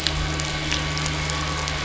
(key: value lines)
label: anthrophony, boat engine
recorder: SoundTrap 500